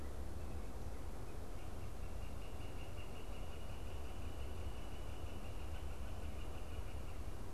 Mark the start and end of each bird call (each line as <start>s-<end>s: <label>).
0.3s-7.5s: Northern Flicker (Colaptes auratus)